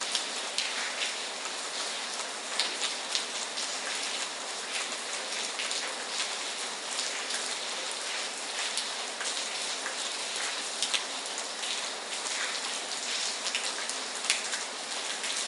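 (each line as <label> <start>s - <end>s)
Rain falls softly in an enclosed urban courtyard. 0.0s - 15.5s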